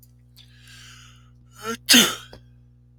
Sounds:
Sneeze